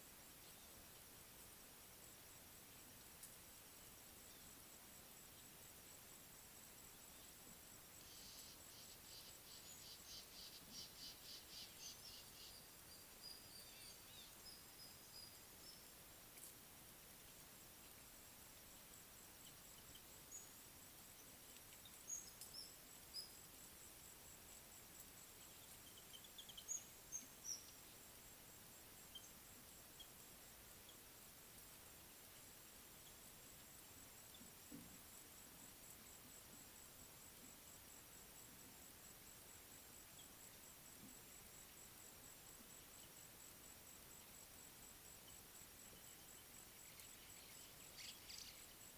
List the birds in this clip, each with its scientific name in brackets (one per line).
Rufous Chatterer (Argya rubiginosa)
Eastern Violet-backed Sunbird (Anthreptes orientalis)
Spotted Morning-Thrush (Cichladusa guttata)